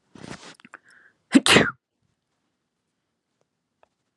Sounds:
Sneeze